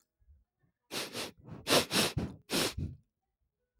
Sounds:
Sniff